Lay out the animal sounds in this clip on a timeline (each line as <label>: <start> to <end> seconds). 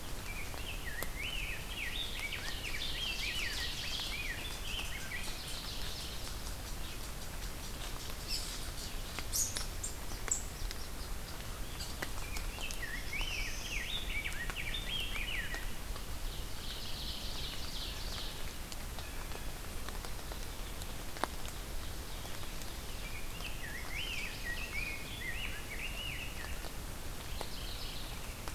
Rose-breasted Grosbeak (Pheucticus ludovicianus): 0.0 to 5.4 seconds
Ovenbird (Seiurus aurocapilla): 1.9 to 4.3 seconds
unknown mammal: 4.5 to 12.1 seconds
Mourning Warbler (Geothlypis philadelphia): 5.3 to 6.4 seconds
Rose-breasted Grosbeak (Pheucticus ludovicianus): 12.2 to 15.7 seconds
Black-throated Blue Warbler (Setophaga caerulescens): 12.5 to 14.0 seconds
Ovenbird (Seiurus aurocapilla): 16.1 to 18.6 seconds
Mourning Warbler (Geothlypis philadelphia): 16.4 to 17.4 seconds
Blue Jay (Cyanocitta cristata): 17.7 to 19.7 seconds
Ovenbird (Seiurus aurocapilla): 21.2 to 23.2 seconds
Rose-breasted Grosbeak (Pheucticus ludovicianus): 23.0 to 26.7 seconds
Chestnut-sided Warbler (Setophaga pensylvanica): 23.7 to 25.0 seconds
Mourning Warbler (Geothlypis philadelphia): 27.1 to 28.5 seconds